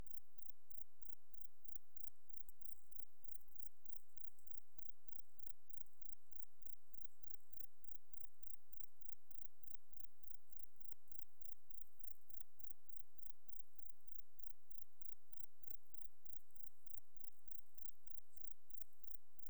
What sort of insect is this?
orthopteran